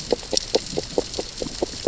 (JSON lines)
{"label": "biophony, grazing", "recorder": "SoundTrap 600 or HydroMoth"}